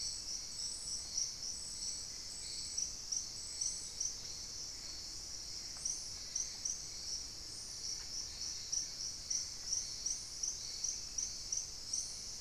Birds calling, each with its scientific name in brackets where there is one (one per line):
Plain-winged Antshrike (Thamnophilus schistaceus)